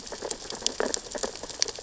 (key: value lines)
label: biophony, sea urchins (Echinidae)
recorder: SoundTrap 600 or HydroMoth